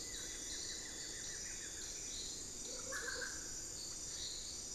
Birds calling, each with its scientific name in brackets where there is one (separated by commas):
Buff-throated Woodcreeper (Xiphorhynchus guttatus), unidentified bird